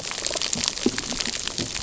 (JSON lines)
{"label": "biophony", "recorder": "SoundTrap 300"}